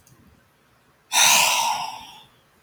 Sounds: Sigh